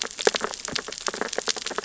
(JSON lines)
{"label": "biophony, sea urchins (Echinidae)", "recorder": "SoundTrap 600 or HydroMoth"}